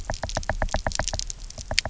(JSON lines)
{"label": "biophony, knock", "recorder": "SoundTrap 300"}